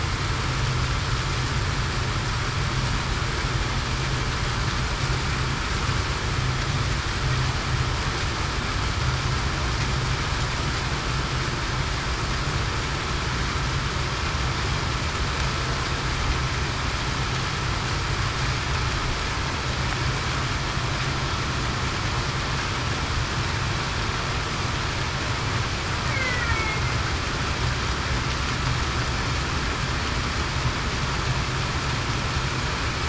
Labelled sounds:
26.1	26.5	killer whale, Bigg's (transient), 1.9 to 2.2 kHz

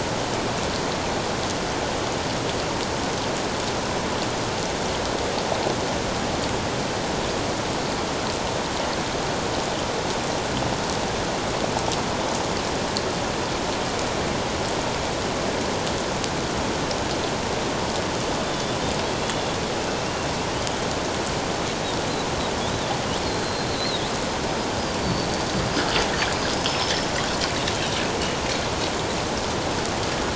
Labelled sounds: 18.4	18.8	killer whale, Bigg's (transient), 3.4 to 3.6 kHz
23.4	24.1	killer whale, Bigg's (transient), 3.5 to 4.3 kHz
25.0	25.3	killer whale, Bigg's (transient), 4.4 to 4.6 kHz
26.3	26.9	killer whale, Bigg's (transient), 4.9 to 5.3 kHz

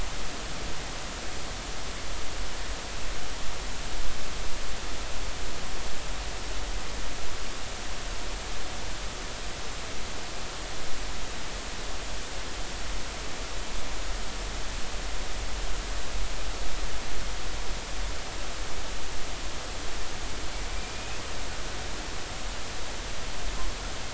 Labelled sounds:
20.7	21.2	killer whale, Bigg's (transient), 2.3 to 2.7 kHz

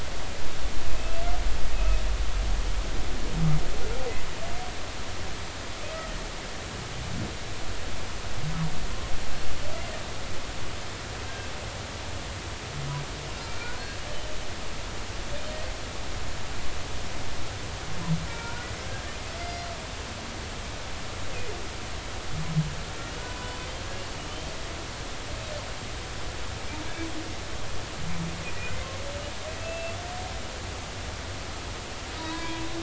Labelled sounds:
1.0	1.2	humpback whale, 2.5 to 2.8 kHz
1.7	2.0	humpback whale, 2.5 to 2.6 kHz
18.3	19.1	humpback whale, 0.90 to 1.7 kHz
19.4	19.7	humpback whale, 2.0 to 4.9 kHz
23.2	23.6	humpback whale, 0.96 to 1.0 kHz
29.6	30.0	humpback whale, 2.6 to 2.7 kHz
32.2	32.7	humpback whale, 0.90 to 4.0 kHz

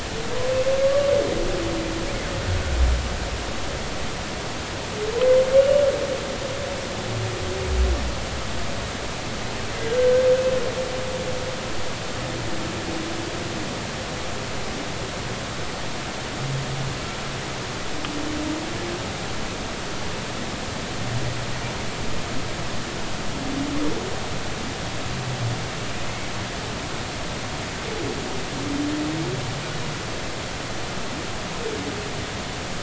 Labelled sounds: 0.8	1.1	humpback whale, 1.1 to 1.2 kHz
5.6	5.8	humpback whale, 2.8 to 2.9 kHz
10.0	10.3	humpback whale, 1.5 to 1.6 kHz

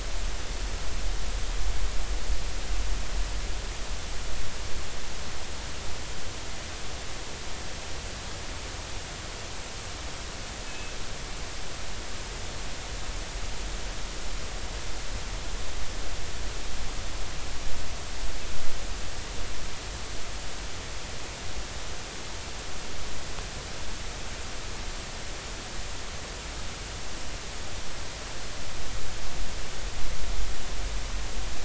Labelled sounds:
10.7	11.0	killer whale, northern resident, G clan, 2.5 to 2.7 kHz

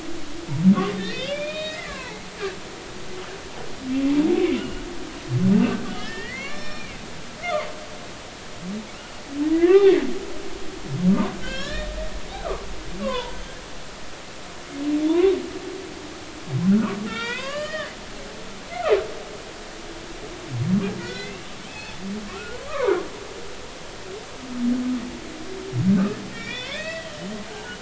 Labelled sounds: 1.0	2.2	humpback whale, 0.80 to 7.0 kHz
4.5	4.8	humpback whale, 2.7 to 3.0 kHz
5.9	7.0	humpback whale, 0.99 to 5.5 kHz
9.5	10.0	humpback whale, 0.96 to 2.0 kHz
11.4	11.9	humpback whale, 1.5 to 4.4 kHz
12.3	12.6	humpback whale, 1.0 to 1.6 kHz
13.0	13.4	humpback whale, 0.86 to 1.2 kHz
15.1	15.3	humpback whale, 0.90 to 1.2 kHz
16.7	17.9	humpback whale, 0.90 to 3.9 kHz
21.0	22.0	humpback whale, 1.4 to 2.8 kHz
22.3	23.0	humpback whale, 0.83 to 1.5 kHz
26.3	27.7	humpback whale, 1.4 to 5.1 kHz

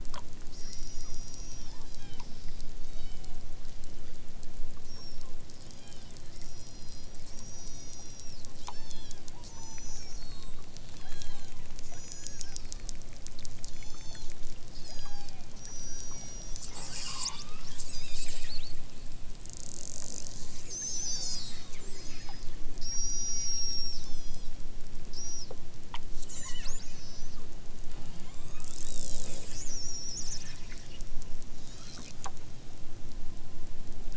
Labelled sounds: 0.6	2.3	killer whale, southern Alaska resident, 0.55 to 8.0 kHz
2.8	3.5	killer whale, southern Alaska resident, 0.41 to 8.0 kHz
3.8	4.4	killer whale, southern Alaska resident, 0.97 to 5.7 kHz
4.8	12.6	killer whale, southern Alaska resident, 0.69 to 8.0 kHz
13.7	14.4	killer whale, southern Alaska resident, 0.46 to 8.0 kHz
14.7	16.6	killer whale, southern Alaska resident, 0.60 to 8.0 kHz
21.8	24.6	killer whale, southern Alaska resident, 0.74 to 8.0 kHz
26.2	27.4	killer whale, southern Alaska resident, 0.78 to 8.0 kHz
27.9	29.4	killer whale, southern Alaska resident, 0.64 to 8.0 kHz
31.6	32.2	killer whale, southern Alaska resident, 0.83 to 7.4 kHz

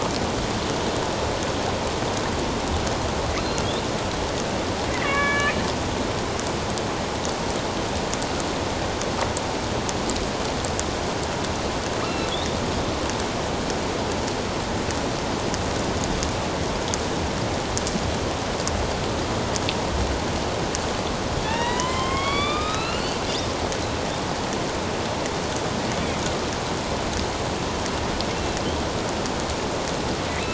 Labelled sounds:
4.9	5.6	killer whale, northern resident, A clan, AB subclan, 1.0 to 2.6 kHz
12.3	12.6	killer whale, northern resident, A clan, AB subclan, 3.3 to 3.8 kHz
21.4	23.2	killer whale, northern resident, A clan, AB subclan, 0.84 to 5.4 kHz

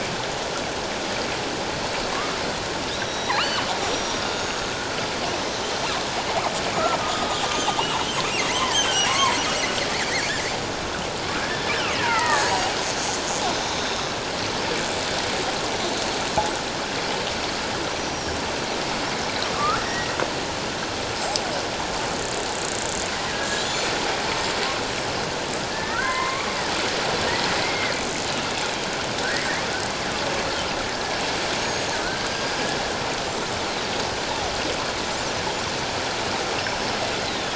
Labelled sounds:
2.9	5.0	killer whale, northern resident, G clan, 1.4 to 6.7 kHz
6.7	7.4	killer whale, northern resident, G clan, 1.1 to 1.4 kHz
8.2	9.4	killer whale, northern resident, G clan, 0.91 to 2.7 kHz
11.3	12.8	killer whale, northern resident, G clan, 0.78 to 7.9 kHz
13.8	14.1	killer whale, northern resident, G clan, 3.5 to 4.0 kHz
18.0	18.4	killer whale, northern resident, G clan, 5.4 to 5.9 kHz
19.5	20.2	killer whale, northern resident, G clan, 1.0 to 2.0 kHz
23.3	23.9	killer whale, northern resident, G clan, 1.6 to 7.1 kHz
25.7	26.5	killer whale, northern resident, G clan, 0.94 to 2.4 kHz
27.6	27.9	killer whale, northern resident, G clan, 1.7 to 2.2 kHz
31.6	32.5	killer whale, northern resident, G clan, 1.2 to 6.8 kHz
37.2	37.5	killer whale, northern resident, G clan, 3.3 to 4.2 kHz

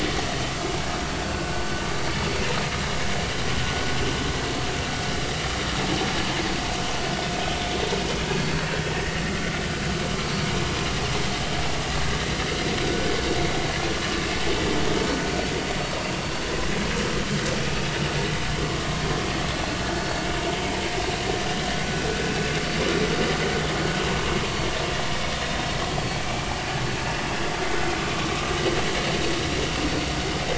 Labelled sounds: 1.2	1.5	vessel noise, 1.4 to 1.6 kHz
8.3	9.2	vessel noise, 1.8 to 4.5 kHz
12.8	13.1	vessel noise, 1.4 to 1.6 kHz
19.9	20.3	vessel noise, 4.4 to 4.5 kHz

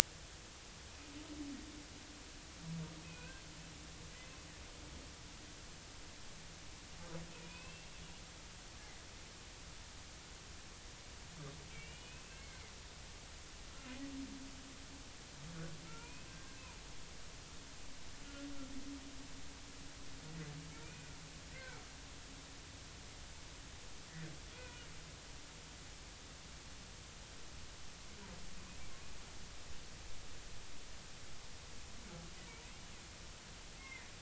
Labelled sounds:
3.0	3.4	humpback whale, 1.4 to 2.7 kHz
7.4	7.9	humpback whale, 0.93 to 2.8 kHz
11.7	12.6	humpback whale, 2.0 to 3.0 kHz
15.9	16.6	humpback whale, 0.90 to 2.6 kHz
20.8	21.8	humpback whale, 1.3 to 2.5 kHz
24.6	24.9	humpback whale, 1.4 to 1.5 kHz
33.8	34.1	humpback whale, 2.0 to 2.2 kHz

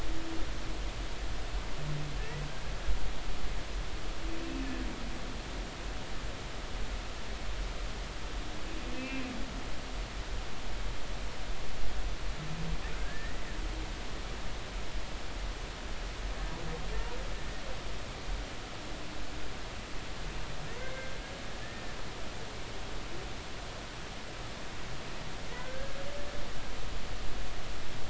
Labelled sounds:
2.2	2.4	humpback whale, 1.7 to 2.0 kHz
8.9	9.3	humpback whale, 2.3 to 2.7 kHz
12.9	13.4	humpback whale, 1.3 to 2.0 kHz
20.8	22.0	humpback whale, 1.7 to 2.2 kHz
25.5	26.0	humpback whale, 1.4 to 2.1 kHz

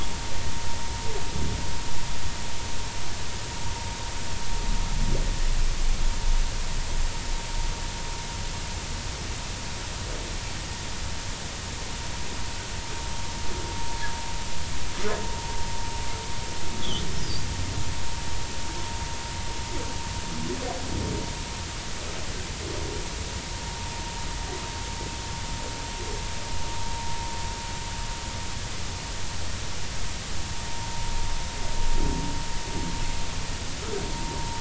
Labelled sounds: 17.2	17.5	humpback whale, 4.5 to 5.1 kHz

